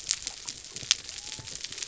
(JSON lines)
{"label": "biophony", "recorder": "SoundTrap 300"}